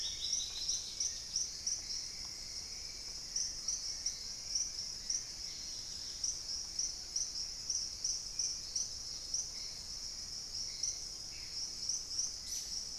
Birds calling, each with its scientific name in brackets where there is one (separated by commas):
Dusky-throated Antshrike (Thamnomanes ardesiacus), Hauxwell's Thrush (Turdus hauxwelli), Wing-barred Piprites (Piprites chloris), Dusky-capped Greenlet (Pachysylvia hypoxantha)